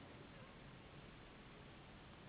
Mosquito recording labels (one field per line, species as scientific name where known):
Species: Anopheles gambiae s.s.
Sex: female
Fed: unfed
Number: one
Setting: insect culture